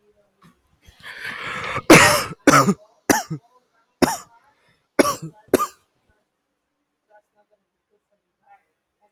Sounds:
Cough